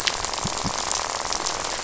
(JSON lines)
{"label": "biophony, rattle", "recorder": "SoundTrap 500"}